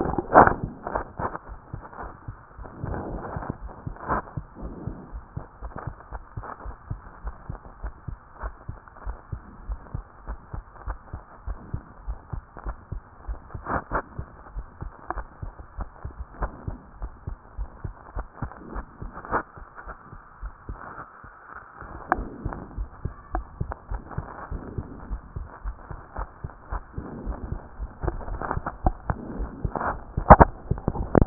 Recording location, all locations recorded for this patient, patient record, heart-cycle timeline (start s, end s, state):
pulmonary valve (PV)
aortic valve (AV)+pulmonary valve (PV)+tricuspid valve (TV)+mitral valve (MV)
#Age: Child
#Sex: Female
#Height: 114.0 cm
#Weight: 19.9 kg
#Pregnancy status: False
#Murmur: Absent
#Murmur locations: nan
#Most audible location: nan
#Systolic murmur timing: nan
#Systolic murmur shape: nan
#Systolic murmur grading: nan
#Systolic murmur pitch: nan
#Systolic murmur quality: nan
#Diastolic murmur timing: nan
#Diastolic murmur shape: nan
#Diastolic murmur grading: nan
#Diastolic murmur pitch: nan
#Diastolic murmur quality: nan
#Outcome: Abnormal
#Campaign: 2014 screening campaign
0.00	4.10	unannotated
4.10	4.22	S1
4.22	4.36	systole
4.36	4.44	S2
4.44	4.62	diastole
4.62	4.74	S1
4.74	4.86	systole
4.86	4.96	S2
4.96	5.12	diastole
5.12	5.22	S1
5.22	5.36	systole
5.36	5.44	S2
5.44	5.62	diastole
5.62	5.72	S1
5.72	5.86	systole
5.86	5.96	S2
5.96	6.12	diastole
6.12	6.22	S1
6.22	6.36	systole
6.36	6.46	S2
6.46	6.64	diastole
6.64	6.76	S1
6.76	6.90	systole
6.90	7.00	S2
7.00	7.24	diastole
7.24	7.34	S1
7.34	7.50	systole
7.50	7.58	S2
7.58	7.82	diastole
7.82	7.94	S1
7.94	8.08	systole
8.08	8.18	S2
8.18	8.42	diastole
8.42	8.54	S1
8.54	8.68	systole
8.68	8.78	S2
8.78	9.06	diastole
9.06	9.16	S1
9.16	9.32	systole
9.32	9.40	S2
9.40	9.68	diastole
9.68	9.80	S1
9.80	9.94	systole
9.94	10.04	S2
10.04	10.28	diastole
10.28	10.38	S1
10.38	10.54	systole
10.54	10.64	S2
10.64	10.86	diastole
10.86	10.98	S1
10.98	11.12	systole
11.12	11.22	S2
11.22	11.46	diastole
11.46	11.58	S1
11.58	11.72	systole
11.72	11.82	S2
11.82	12.06	diastole
12.06	12.18	S1
12.18	12.32	systole
12.32	12.42	S2
12.42	12.66	diastole
12.66	12.76	S1
12.76	12.92	systole
12.92	13.02	S2
13.02	13.28	diastole
13.28	13.38	S1
13.38	13.54	systole
13.54	13.64	S2
13.64	13.92	diastole
13.92	14.02	S1
14.02	14.18	systole
14.18	14.26	S2
14.26	14.54	diastole
14.54	14.66	S1
14.66	14.82	systole
14.82	14.92	S2
14.92	15.16	diastole
15.16	15.26	S1
15.26	15.42	systole
15.42	15.54	S2
15.54	15.78	diastole
15.78	15.88	S1
15.88	16.04	systole
16.04	16.12	S2
16.12	16.40	diastole
16.40	16.52	S1
16.52	16.68	systole
16.68	16.78	S2
16.78	17.02	diastole
17.02	17.12	S1
17.12	17.28	systole
17.28	17.38	S2
17.38	17.58	diastole
17.58	17.68	S1
17.68	17.84	systole
17.84	17.92	S2
17.92	18.16	diastole
18.16	18.26	S1
18.26	18.42	systole
18.42	18.52	S2
18.52	18.78	diastole
18.78	18.86	S1
18.86	19.02	systole
19.02	19.12	S2
19.12	19.32	diastole
19.32	31.26	unannotated